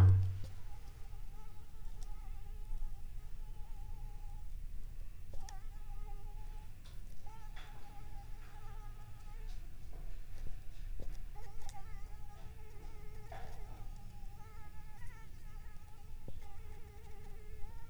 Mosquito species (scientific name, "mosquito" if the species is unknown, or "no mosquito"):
Anopheles arabiensis